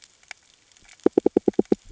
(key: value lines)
label: ambient
recorder: HydroMoth